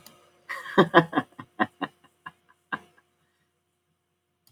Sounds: Laughter